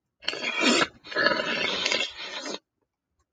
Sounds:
Sniff